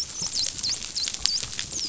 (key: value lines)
label: biophony, dolphin
recorder: SoundTrap 500